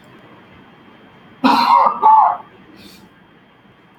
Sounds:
Laughter